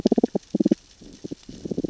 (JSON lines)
{"label": "biophony, growl", "recorder": "SoundTrap 600 or HydroMoth"}
{"label": "biophony, damselfish", "recorder": "SoundTrap 600 or HydroMoth"}